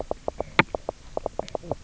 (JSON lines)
{"label": "biophony, knock croak", "recorder": "SoundTrap 300"}